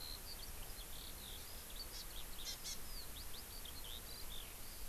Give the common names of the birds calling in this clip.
Eurasian Skylark, Hawaii Amakihi